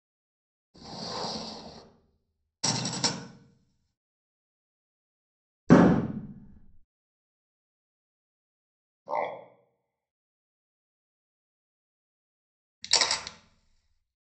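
First, wooden furniture moves. Then glass is heard. After that, there are fireworks. Afterwards, a frog is audible. Finally, there is the sound of a camera.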